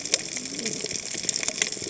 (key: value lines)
label: biophony, cascading saw
recorder: HydroMoth